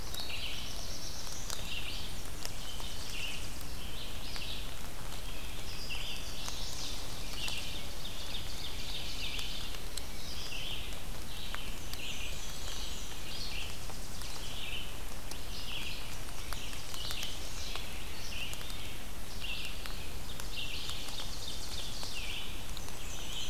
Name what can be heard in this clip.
Red-eyed Vireo, Black-throated Blue Warbler, Tennessee Warbler, Chestnut-sided Warbler, Ovenbird, Black-and-white Warbler